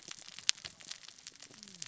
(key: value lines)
label: biophony, cascading saw
recorder: SoundTrap 600 or HydroMoth